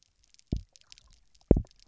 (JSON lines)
{"label": "biophony, double pulse", "recorder": "SoundTrap 300"}